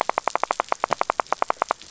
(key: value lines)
label: biophony, rattle
recorder: SoundTrap 500